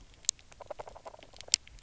{"label": "biophony, knock croak", "recorder": "SoundTrap 300"}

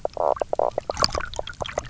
{"label": "biophony, knock croak", "recorder": "SoundTrap 300"}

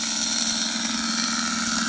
{"label": "anthrophony, boat engine", "recorder": "HydroMoth"}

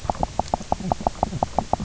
{"label": "biophony, knock croak", "recorder": "SoundTrap 300"}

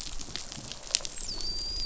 {"label": "biophony, dolphin", "recorder": "SoundTrap 500"}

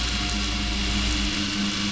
{"label": "anthrophony, boat engine", "recorder": "SoundTrap 500"}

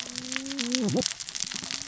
{"label": "biophony, cascading saw", "recorder": "SoundTrap 600 or HydroMoth"}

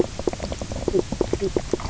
{"label": "biophony, knock croak", "recorder": "SoundTrap 300"}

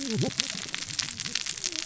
{"label": "biophony, cascading saw", "recorder": "SoundTrap 600 or HydroMoth"}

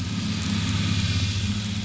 {"label": "anthrophony, boat engine", "recorder": "SoundTrap 500"}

